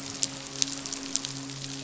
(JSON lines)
{"label": "biophony, midshipman", "recorder": "SoundTrap 500"}